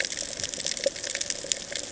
{"label": "ambient", "recorder": "HydroMoth"}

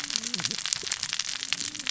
{"label": "biophony, cascading saw", "recorder": "SoundTrap 600 or HydroMoth"}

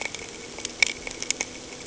{"label": "anthrophony, boat engine", "recorder": "HydroMoth"}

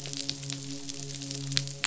{"label": "biophony, midshipman", "recorder": "SoundTrap 500"}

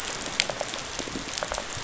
{"label": "biophony, rattle response", "recorder": "SoundTrap 500"}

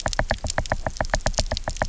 {"label": "biophony, knock", "recorder": "SoundTrap 300"}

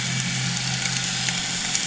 {"label": "anthrophony, boat engine", "recorder": "HydroMoth"}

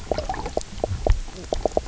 {"label": "biophony, knock croak", "recorder": "SoundTrap 300"}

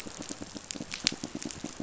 {"label": "biophony, pulse", "recorder": "SoundTrap 500"}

